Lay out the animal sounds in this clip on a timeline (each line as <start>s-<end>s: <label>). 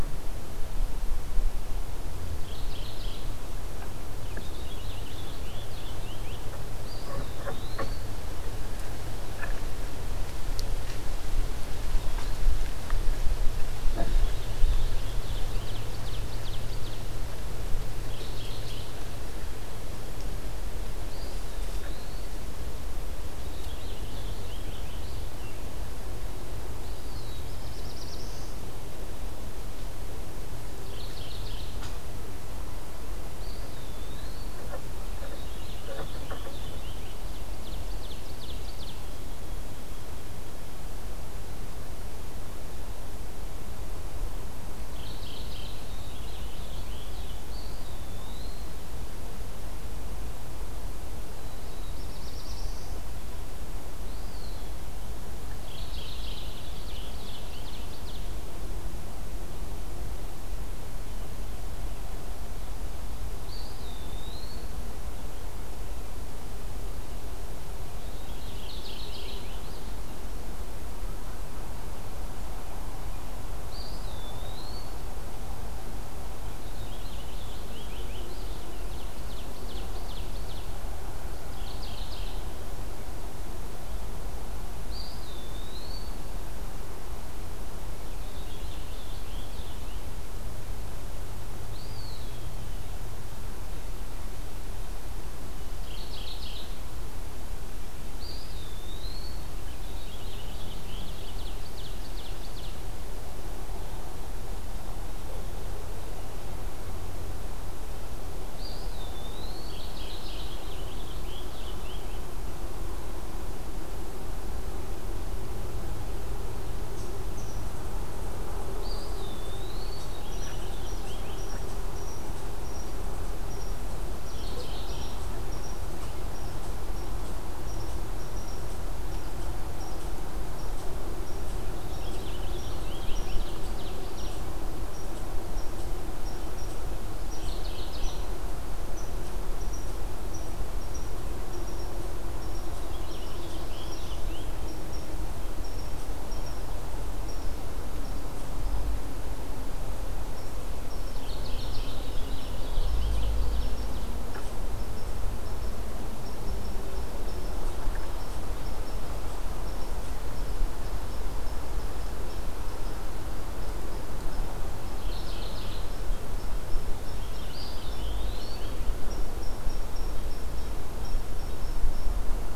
2.3s-3.6s: Mourning Warbler (Geothlypis philadelphia)
4.1s-6.7s: Purple Finch (Haemorhous purpureus)
6.8s-8.3s: Eastern Wood-Pewee (Contopus virens)
13.7s-15.9s: Purple Finch (Haemorhous purpureus)
15.2s-17.1s: Ovenbird (Seiurus aurocapilla)
17.9s-19.1s: Mourning Warbler (Geothlypis philadelphia)
20.9s-22.7s: Eastern Wood-Pewee (Contopus virens)
23.2s-25.7s: Purple Finch (Haemorhous purpureus)
26.7s-27.5s: Eastern Wood-Pewee (Contopus virens)
26.7s-28.8s: Black-throated Blue Warbler (Setophaga caerulescens)
30.7s-32.0s: Mourning Warbler (Geothlypis philadelphia)
33.3s-34.8s: Eastern Wood-Pewee (Contopus virens)
35.1s-37.1s: Purple Finch (Haemorhous purpureus)
37.0s-39.3s: Ovenbird (Seiurus aurocapilla)
44.7s-45.9s: Mourning Warbler (Geothlypis philadelphia)
45.5s-47.5s: Purple Finch (Haemorhous purpureus)
47.4s-48.7s: Eastern Wood-Pewee (Contopus virens)
51.2s-53.0s: Black-throated Blue Warbler (Setophaga caerulescens)
53.7s-54.9s: Eastern Wood-Pewee (Contopus virens)
55.5s-56.7s: Mourning Warbler (Geothlypis philadelphia)
56.7s-58.7s: Ovenbird (Seiurus aurocapilla)
63.4s-64.9s: Eastern Wood-Pewee (Contopus virens)
67.9s-69.5s: Mourning Warbler (Geothlypis philadelphia)
68.0s-70.0s: Purple Finch (Haemorhous purpureus)
73.5s-75.0s: Eastern Wood-Pewee (Contopus virens)
76.2s-78.7s: Purple Finch (Haemorhous purpureus)
78.5s-80.8s: Ovenbird (Seiurus aurocapilla)
81.4s-82.5s: Mourning Warbler (Geothlypis philadelphia)
84.8s-86.3s: Eastern Wood-Pewee (Contopus virens)
87.8s-90.2s: Purple Finch (Haemorhous purpureus)
91.5s-92.7s: Eastern Wood-Pewee (Contopus virens)
95.5s-97.1s: Mourning Warbler (Geothlypis philadelphia)
98.0s-99.5s: Eastern Wood-Pewee (Contopus virens)
99.6s-101.2s: Purple Finch (Haemorhous purpureus)
100.6s-102.8s: Ovenbird (Seiurus aurocapilla)
108.3s-109.8s: Eastern Wood-Pewee (Contopus virens)
109.8s-110.7s: Mourning Warbler (Geothlypis philadelphia)
110.5s-112.5s: Purple Finch (Haemorhous purpureus)
119.2s-120.3s: Eastern Wood-Pewee (Contopus virens)
120.0s-121.6s: Purple Finch (Haemorhous purpureus)
124.2s-125.4s: Mourning Warbler (Geothlypis philadelphia)
131.8s-134.1s: Purple Finch (Haemorhous purpureus)
132.4s-134.5s: Ovenbird (Seiurus aurocapilla)
137.1s-138.4s: Mourning Warbler (Geothlypis philadelphia)
142.7s-144.8s: Purple Finch (Haemorhous purpureus)
151.0s-152.2s: Mourning Warbler (Geothlypis philadelphia)
152.2s-154.1s: Ovenbird (Seiurus aurocapilla)
164.8s-166.2s: Mourning Warbler (Geothlypis philadelphia)
167.0s-168.8s: Purple Finch (Haemorhous purpureus)
167.3s-168.8s: Eastern Wood-Pewee (Contopus virens)